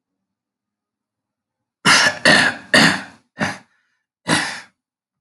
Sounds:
Throat clearing